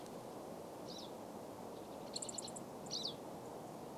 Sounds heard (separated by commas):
Pine Siskin song, Pine Siskin call, unidentified bird chip note